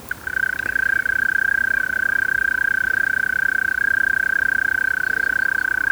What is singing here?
Gryllotalpa gryllotalpa, an orthopteran